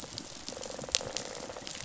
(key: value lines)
label: biophony, rattle response
recorder: SoundTrap 500